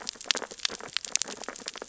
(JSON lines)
{"label": "biophony, sea urchins (Echinidae)", "recorder": "SoundTrap 600 or HydroMoth"}